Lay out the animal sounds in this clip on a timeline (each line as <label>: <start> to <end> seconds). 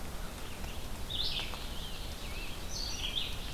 Red-eyed Vireo (Vireo olivaceus): 0.0 to 3.5 seconds
Rose-breasted Grosbeak (Pheucticus ludovicianus): 0.0 to 3.5 seconds